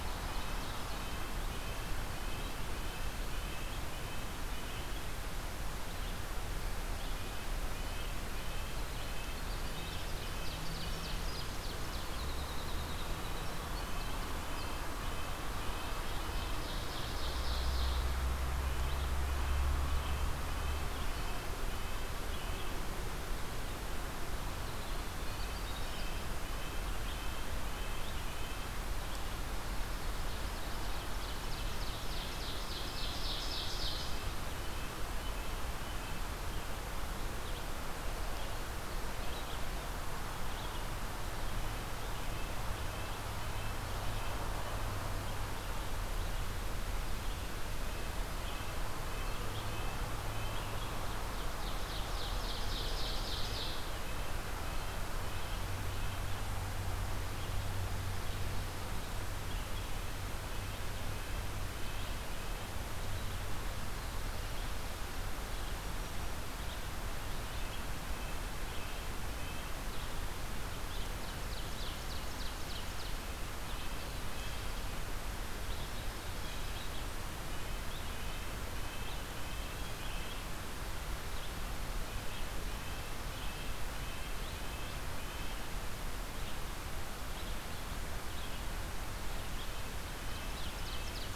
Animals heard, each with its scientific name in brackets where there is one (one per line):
Red-breasted Nuthatch (Sitta canadensis)
Red-eyed Vireo (Vireo olivaceus)
Winter Wren (Troglodytes hiemalis)
Ovenbird (Seiurus aurocapilla)